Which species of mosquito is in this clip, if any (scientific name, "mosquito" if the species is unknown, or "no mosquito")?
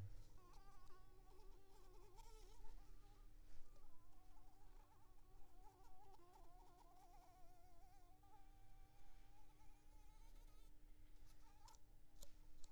Anopheles arabiensis